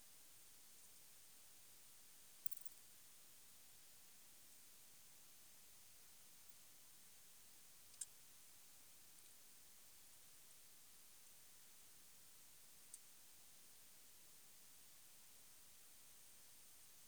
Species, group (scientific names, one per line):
Poecilimon tessellatus
Orthoptera